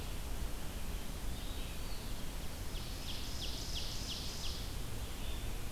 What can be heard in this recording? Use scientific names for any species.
Vireo olivaceus, Contopus virens, Seiurus aurocapilla